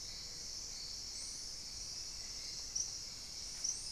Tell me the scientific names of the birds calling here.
Turdus hauxwelli